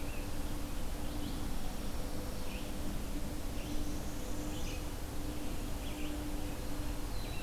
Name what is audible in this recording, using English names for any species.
Red-eyed Vireo, Northern Parula